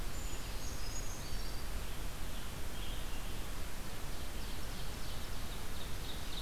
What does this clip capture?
Brown Creeper, Red-eyed Vireo, Scarlet Tanager, Ovenbird